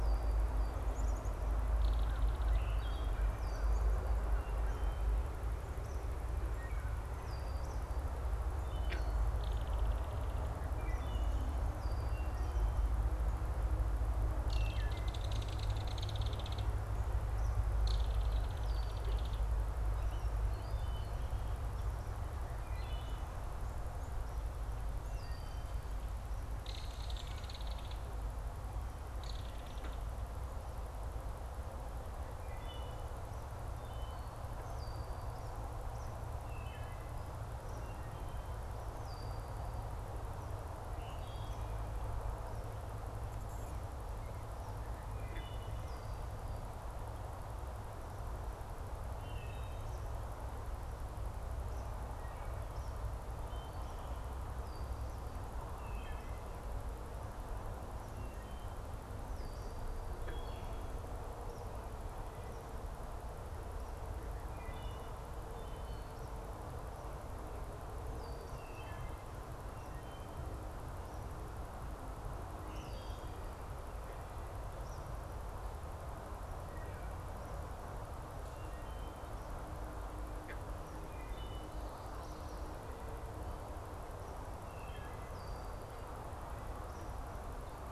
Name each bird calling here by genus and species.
Agelaius phoeniceus, Poecile atricapillus, Megaceryle alcyon, Hylocichla mustelina, Tyrannus tyrannus